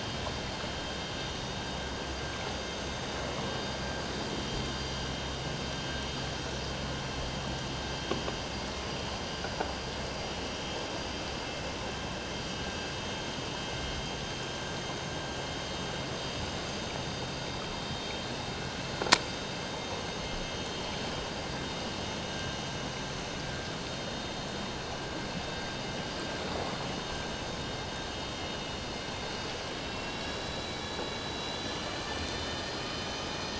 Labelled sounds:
29.8	33.5	vessel noise, 2.7 to 6.2 kHz

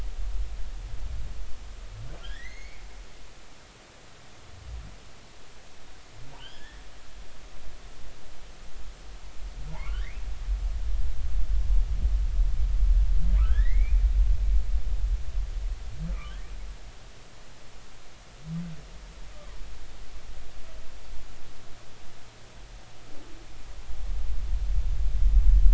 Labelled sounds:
2.2	2.8	humpback whale, 1.5 to 6.7 kHz
6.4	6.8	humpback whale, 1.6 to 3.4 kHz
9.7	10.2	humpback whale, 0.80 to 2.7 kHz
13.4	14.0	humpback whale, 1.1 to 4.0 kHz
16.3	16.5	humpback whale, 1.5 to 1.9 kHz

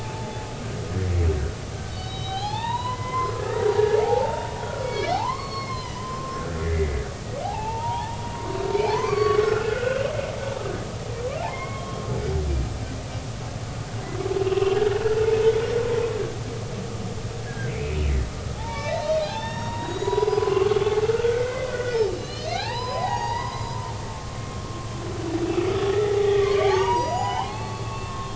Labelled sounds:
1.9	4.4	humpback whale, 0.80 to 4.6 kHz
4.7	7.0	humpback whale, 0.80 to 5.5 kHz
7.4	8.2	humpback whale, 0.80 to 2.8 kHz
8.8	10.0	humpback whale, 0.80 to 4.7 kHz
11.4	12.0	humpback whale, 0.80 to 2.2 kHz
14.4	14.8	humpback whale, 2.5 to 2.9 kHz
17.5	18.0	humpback whale, 1.5 to 2.6 kHz
18.6	23.8	humpback whale, 0.80 to 6.9 kHz
25.9	28.3	humpback whale, 0.80 to 5.9 kHz

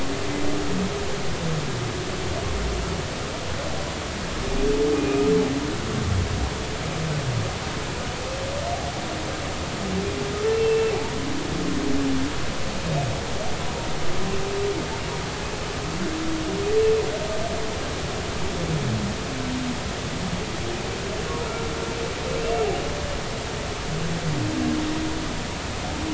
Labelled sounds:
5.0	5.2	humpback whale, 2.4 to 2.5 kHz
10.5	11.0	humpback whale, 2.5 to 2.7 kHz
21.4	21.6	humpback whale, 1.2 to 1.4 kHz

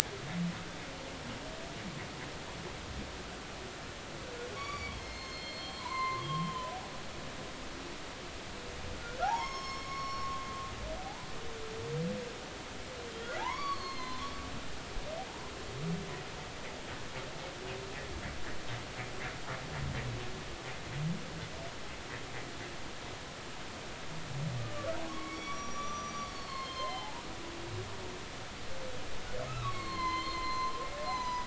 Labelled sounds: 4.5	6.8	humpback whale, 0.90 to 6.5 kHz
9.2	10.4	humpback whale, 0.80 to 6.5 kHz
11.0	11.3	humpback whale, 0.80 to 1.1 kHz
13.4	14.3	humpback whale, 0.80 to 6.5 kHz
25.0	27.2	humpback whale, 0.80 to 6.4 kHz
29.5	31.4	humpback whale, 0.80 to 6.3 kHz

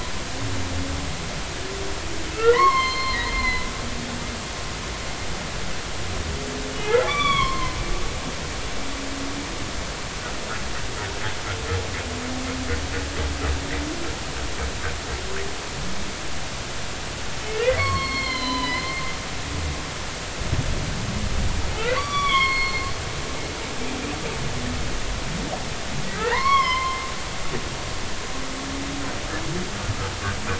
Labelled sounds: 2.4	3.7	humpback whale, 0.93 to 6.4 kHz
6.8	7.7	humpback whale, 0.96 to 3.6 kHz
17.6	19.1	humpback whale, 0.93 to 4.6 kHz
22.0	22.9	humpback whale, 0.99 to 5.8 kHz
26.1	27.0	humpback whale, 0.86 to 4.5 kHz

